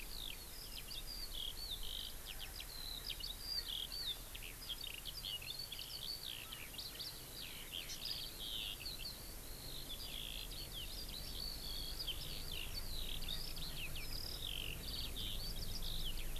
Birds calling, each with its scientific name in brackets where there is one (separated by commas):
Hawaii Amakihi (Chlorodrepanis virens), Eurasian Skylark (Alauda arvensis)